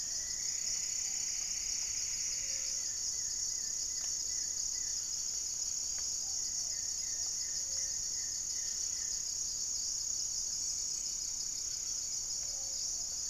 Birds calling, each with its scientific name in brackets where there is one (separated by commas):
Plumbeous Pigeon (Patagioenas plumbea), Gray-fronted Dove (Leptotila rufaxilla), unidentified bird, Goeldi's Antbird (Akletos goeldii), Plumbeous Antbird (Myrmelastes hyperythrus), Buff-breasted Wren (Cantorchilus leucotis)